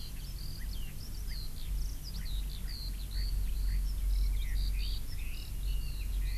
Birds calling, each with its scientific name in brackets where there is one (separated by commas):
Eurasian Skylark (Alauda arvensis), Red-billed Leiothrix (Leiothrix lutea)